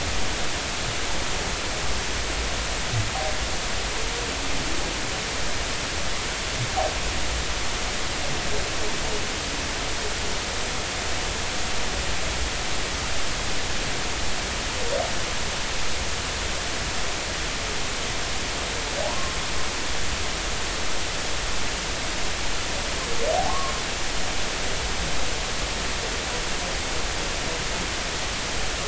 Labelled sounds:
19.0	19.3	humpback whale, 0.80 to 1.1 kHz
23.5	23.7	humpback whale, 0.96 to 1.2 kHz

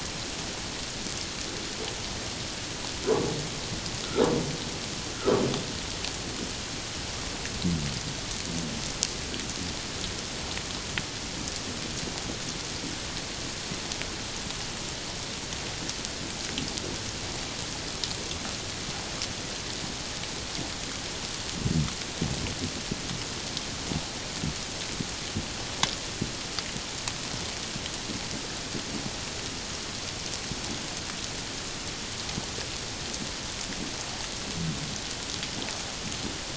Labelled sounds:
5.1	5.4	humpback whale, 1.1 to 1.5 kHz

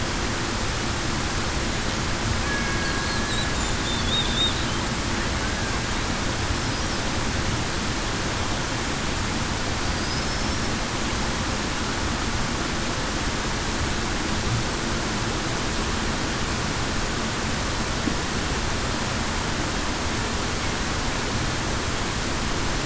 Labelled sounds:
2.4	2.9	killer whale, Bigg's (transient), 1.6 to 1.7 kHz

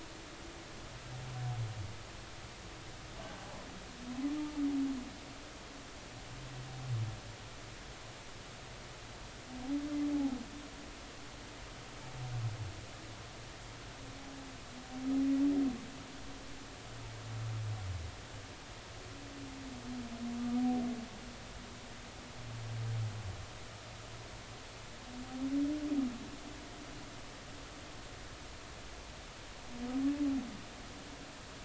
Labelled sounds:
10.1	10.4	humpback whale, 0.80 to 0.90 kHz

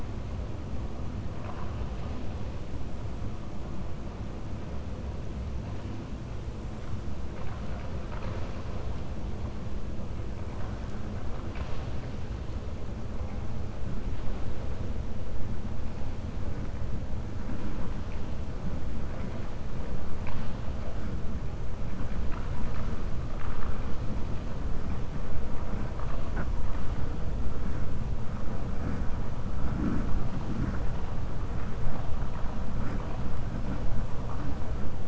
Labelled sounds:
1.3	1.8	vessel noise, 0.63 to 3.1 kHz

